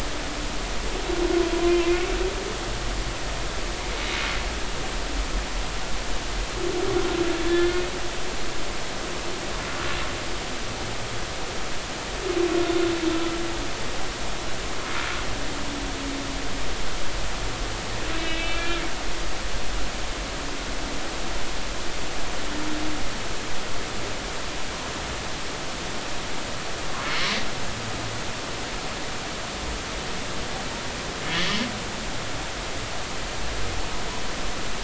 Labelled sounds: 1.5	2.0	humpback whale, 0.96 to 2.5 kHz
7.4	7.7	humpback whale, 1.7 to 3.6 kHz
13.1	13.4	humpback whale, 1.2 to 1.4 kHz
18.1	18.8	humpback whale, 1.3 to 3.0 kHz

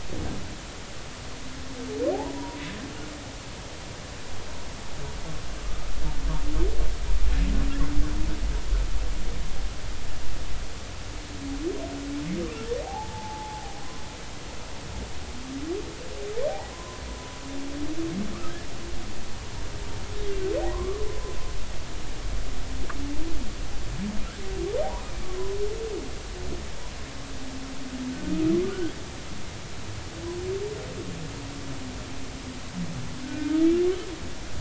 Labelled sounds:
2.1	2.6	humpback whale, 0.80 to 1.0 kHz
12.8	13.8	humpback whale, 0.80 to 0.93 kHz
16.7	17.0	humpback whale, 0.96 to 1.1 kHz
20.7	21.0	humpback whale, 0.93 to 1.2 kHz
24.8	25.3	humpback whale, 0.80 to 2.5 kHz
33.2	33.6	humpback whale, 1.4 to 1.6 kHz

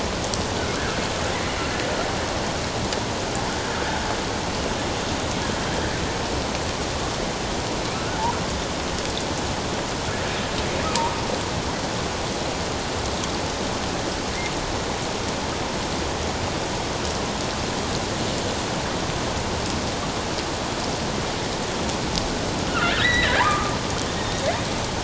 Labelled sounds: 1.3	1.6	killer whale, offshore, 1.9 to 2.1 kHz
7.9	8.2	killer whale, offshore, 1.2 to 1.5 kHz
22.9	23.7	killer whale, offshore, 0.78 to 4.0 kHz

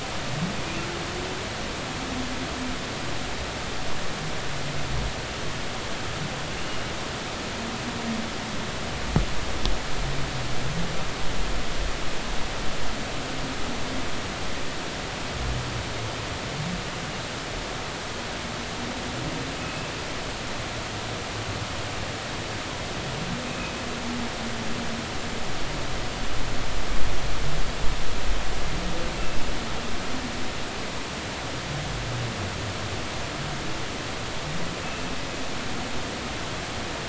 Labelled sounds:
23.5	23.7	humpback whale, 2.4 to 2.6 kHz
29.1	29.4	humpback whale, 2.6 to 2.8 kHz

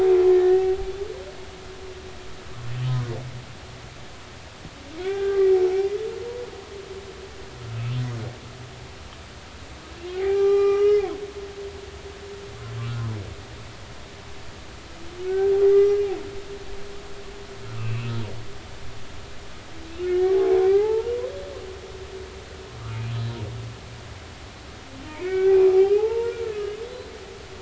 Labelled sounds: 0.3	0.7	humpback whale, 1.7 to 1.9 kHz
5.0	5.5	humpback whale, 1.1 to 3.6 kHz
10.0	11.1	humpback whale, 0.80 to 5.8 kHz
15.3	16.0	humpback whale, 1.2 to 2.1 kHz
17.7	18.1	humpback whale, 1.1 to 2.8 kHz
20.1	21.1	humpback whale, 0.80 to 2.2 kHz
22.9	23.4	humpback whale, 2.4 to 4.1 kHz
25.1	27.1	humpback whale, 0.80 to 4.1 kHz

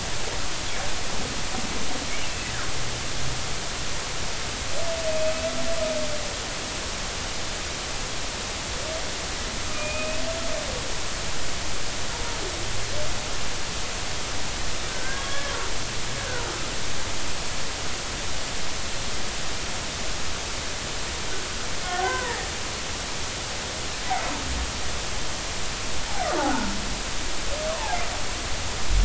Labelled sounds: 2.2	2.5	humpback whale, 2.5 to 2.8 kHz
9.7	10.2	humpback whale, 2.4 to 2.6 kHz
14.9	15.5	humpback whale, 1.1 to 1.8 kHz
21.8	22.5	humpback whale, 0.80 to 2.1 kHz
27.7	28.0	humpback whale, 0.80 to 1.3 kHz

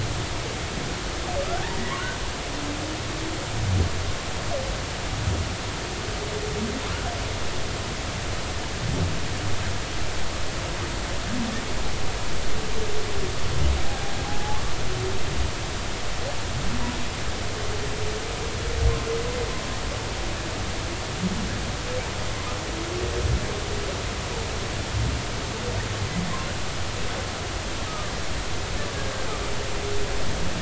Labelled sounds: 14.2	14.6	humpback whale, 0.80 to 0.90 kHz
27.9	28.1	humpback whale, 1.2 to 1.3 kHz

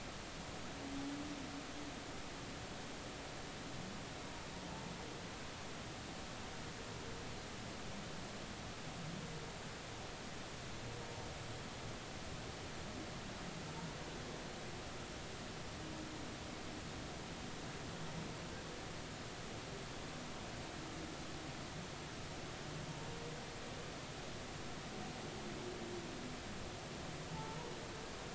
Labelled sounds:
27.3	27.7	humpback whale, 0.83 to 0.99 kHz

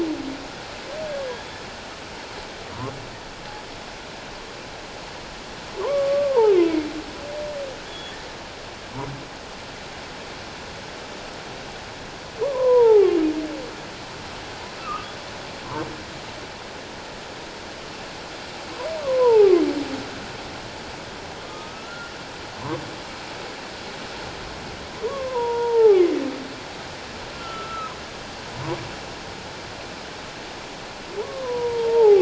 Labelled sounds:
5.8	6.7	humpback whale, 0.78 to 1.3 kHz
7.8	8.2	humpback whale, 3.2 to 3.5 kHz
12.4	13.2	humpback whale, 0.78 to 1.4 kHz
14.8	15.1	humpback whale, 1.0 to 2.8 kHz
19.0	19.5	humpback whale, 0.78 to 1.2 kHz
21.4	22.1	humpback whale, 1.0 to 1.5 kHz
25.1	26.0	humpback whale, 0.78 to 1.4 kHz
27.3	27.9	humpback whale, 1.2 to 3.1 kHz
31.4	32.2	humpback whale, 0.78 to 1.1 kHz

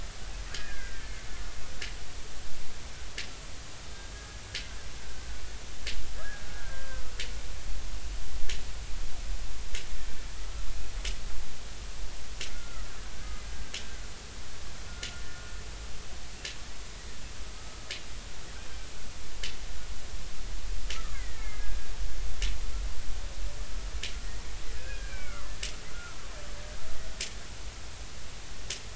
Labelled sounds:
0.5	1.2	killer whale, Bigg's (transient), 1.4 to 1.9 kHz
4.1	4.4	killer whale, Bigg's (transient), 1.6 to 1.7 kHz
5.0	7.1	killer whale, Bigg's (transient), 1.3 to 1.8 kHz
12.5	12.9	killer whale, Bigg's (transient), 1.2 to 1.5 kHz
14.9	15.5	killer whale, Bigg's (transient), 1.4 to 1.9 kHz
17.6	17.8	killer whale, Bigg's (transient), 1.2 to 1.3 kHz
20.9	21.8	killer whale, Bigg's (transient), 1.1 to 2.3 kHz
24.7	26.2	killer whale, Bigg's (transient), 1.1 to 2.6 kHz

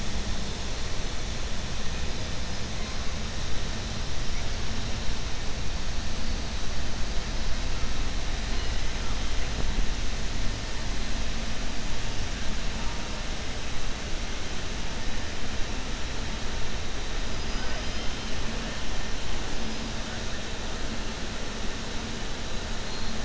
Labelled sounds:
17.3	18.1	killer whale, southern resident, 4.2 to 5.3 kHz

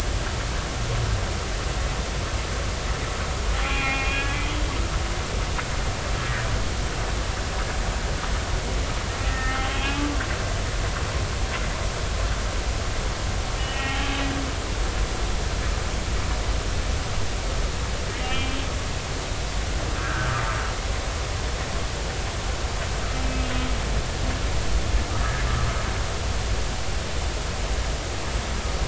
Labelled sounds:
3.5	4.4	humpback whale, 0.80 to 2.8 kHz
9.2	10.0	humpback whale, 1.2 to 3.3 kHz
13.6	14.1	humpback whale, 0.80 to 3.0 kHz
18.2	18.6	humpback whale, 2.3 to 2.9 kHz
20.0	20.4	humpback whale, 1.2 to 1.7 kHz

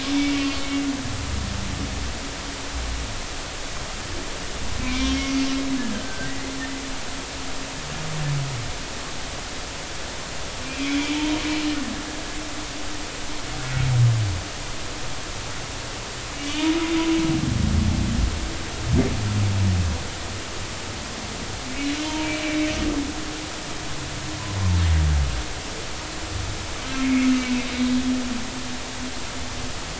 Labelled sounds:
0.1	0.5	humpback whale, 2.2 to 2.3 kHz
4.8	5.3	humpback whale, 2.2 to 3.3 kHz
5.9	6.3	humpback whale, 1.5 to 1.7 kHz
10.6	11.4	humpback whale, 0.86 to 2.6 kHz
16.4	16.7	humpback whale, 2.2 to 3.1 kHz
22.4	22.7	humpback whale, 2.2 to 2.4 kHz

